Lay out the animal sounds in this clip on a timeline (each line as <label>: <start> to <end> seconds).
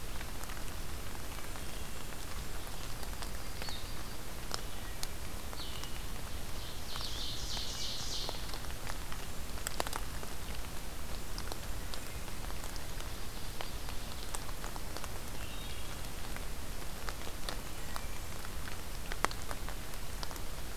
Wood Thrush (Hylocichla mustelina): 1.4 to 2.2 seconds
Yellow-rumped Warbler (Setophaga coronata): 3.0 to 4.2 seconds
Blue-headed Vireo (Vireo solitarius): 3.5 to 7.4 seconds
Ovenbird (Seiurus aurocapilla): 6.5 to 8.5 seconds
Wood Thrush (Hylocichla mustelina): 15.4 to 15.9 seconds
Wood Thrush (Hylocichla mustelina): 17.6 to 18.4 seconds